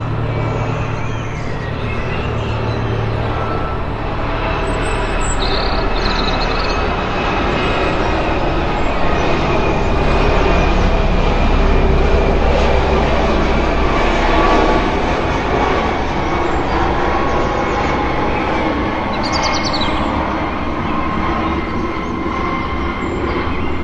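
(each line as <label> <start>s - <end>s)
An airplane passes overhead with its engine noise fading slightly. 0.0s - 23.8s
Birds twittering in the distance. 0.3s - 3.4s
A bird is twittering nearby outdoors. 5.1s - 7.4s
Birds twittering in the distance. 7.8s - 11.5s
Birds twittering in the distance. 16.2s - 18.7s
A bird is twittering nearby outdoors. 19.0s - 20.1s
Birds twittering in the distance. 20.4s - 23.8s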